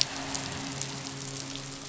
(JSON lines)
{"label": "biophony, midshipman", "recorder": "SoundTrap 500"}